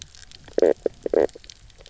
{"label": "biophony, knock croak", "recorder": "SoundTrap 300"}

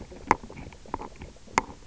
{"label": "biophony, knock croak", "recorder": "SoundTrap 300"}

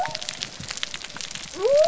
{"label": "biophony", "recorder": "SoundTrap 300"}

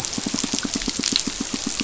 {"label": "biophony, pulse", "recorder": "SoundTrap 500"}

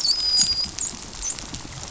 {"label": "biophony, dolphin", "recorder": "SoundTrap 500"}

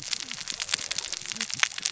{"label": "biophony, cascading saw", "recorder": "SoundTrap 600 or HydroMoth"}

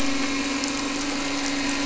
{"label": "anthrophony, boat engine", "recorder": "SoundTrap 300"}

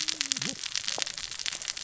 {"label": "biophony, cascading saw", "recorder": "SoundTrap 600 or HydroMoth"}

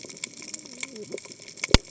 {"label": "biophony, cascading saw", "recorder": "HydroMoth"}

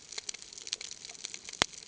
{"label": "ambient", "recorder": "HydroMoth"}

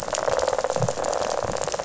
{"label": "biophony, rattle", "recorder": "SoundTrap 500"}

